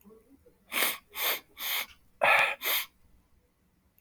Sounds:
Sniff